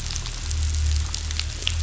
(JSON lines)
{"label": "anthrophony, boat engine", "recorder": "SoundTrap 500"}